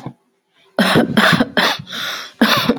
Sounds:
Cough